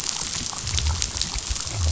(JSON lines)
{"label": "biophony", "recorder": "SoundTrap 500"}